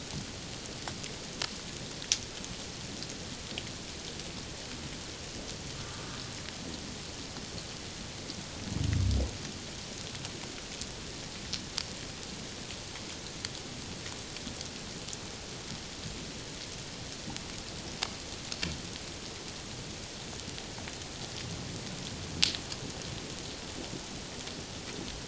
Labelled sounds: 5.9	6.2	humpback whale, 1.1 to 1.3 kHz

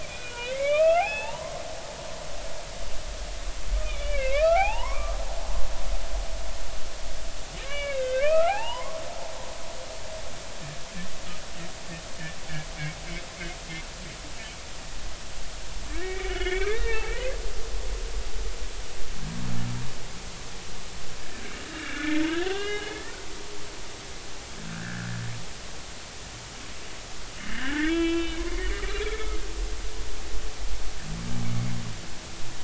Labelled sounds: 0.0	1.6	humpback whale, 0.80 to 3.8 kHz
3.8	5.2	humpback whale, 0.80 to 3.1 kHz
7.6	9.0	humpback whale, 0.80 to 3.8 kHz
15.9	18.0	humpback whale, 0.80 to 3.5 kHz
21.7	23.0	humpback whale, 1.5 to 3.8 kHz
24.6	25.1	humpback whale, 1.3 to 1.8 kHz
27.4	28.5	humpback whale, 1.3 to 3.4 kHz
29.0	29.4	humpback whale, 1.2 to 2.4 kHz

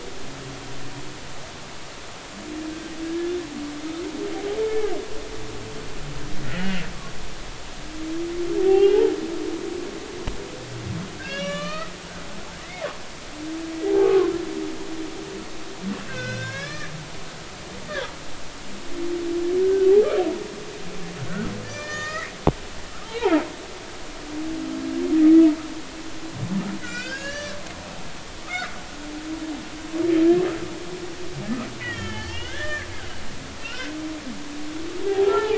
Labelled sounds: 3.0	3.3	humpback whale, 1.6 to 1.8 kHz
4.6	4.9	humpback whale, 1.5 to 2.3 kHz
6.4	6.9	humpback whale, 1.3 to 3.0 kHz
8.6	9.1	humpback whale, 0.80 to 2.9 kHz
11.2	11.9	humpback whale, 1.1 to 4.5 kHz
12.6	12.9	humpback whale, 1.9 to 2.3 kHz
13.9	14.3	humpback whale, 0.80 to 1.3 kHz
16.1	17.9	humpback whale, 1.4 to 7.0 kHz
19.6	19.9	humpback whale, 1.4 to 1.6 kHz
21.6	22.3	humpback whale, 1.2 to 7.1 kHz
23.0	23.4	humpback whale, 0.80 to 1.1 kHz
26.8	27.6	humpback whale, 1.1 to 7.5 kHz
28.1	28.7	humpback whale, 1.1 to 6.0 kHz
31.8	32.9	humpback whale, 1.3 to 3.5 kHz
33.6	33.9	humpback whale, 1.3 to 3.2 kHz
35.1	35.5	humpback whale, 0.80 to 1.9 kHz

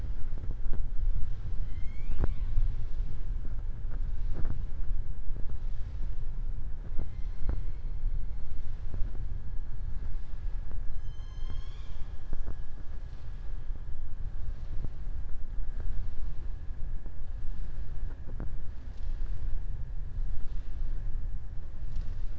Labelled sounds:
10.9	12.1	killer whale, southern resident, 0.91 to 7.4 kHz

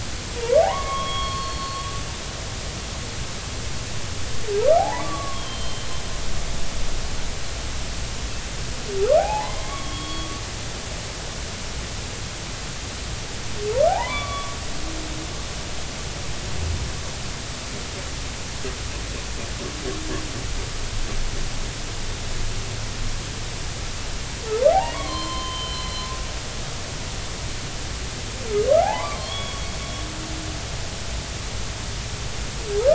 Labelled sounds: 0.4	1.8	humpback whale, 0.80 to 4.4 kHz
4.8	5.9	humpback whale, 0.80 to 4.3 kHz
9.2	10.4	humpback whale, 0.80 to 3.4 kHz
13.9	14.6	humpback whale, 0.80 to 2.4 kHz
24.7	26.1	humpback whale, 0.80 to 4.3 kHz
28.8	29.7	humpback whale, 0.80 to 3.4 kHz

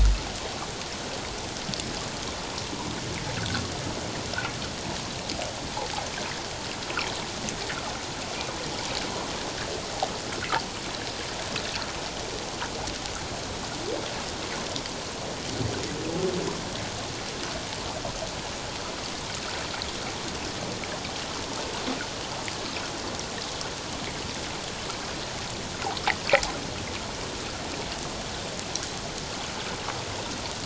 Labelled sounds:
3.4	3.6	water noise, 1.3 to 1.8 kHz

